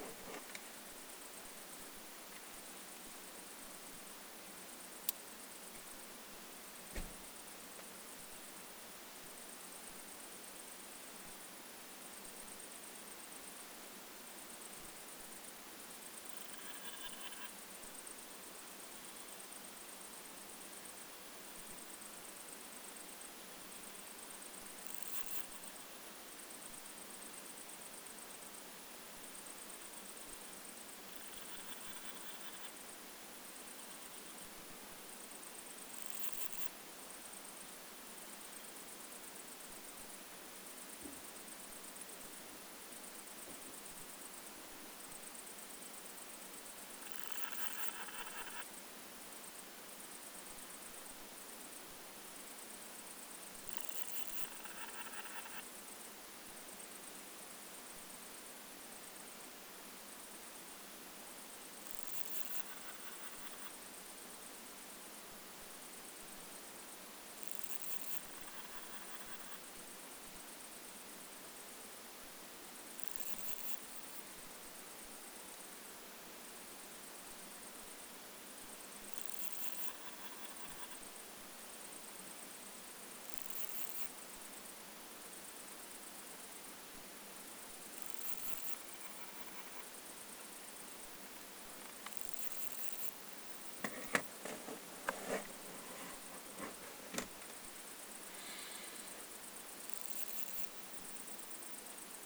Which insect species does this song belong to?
Parnassiana fusca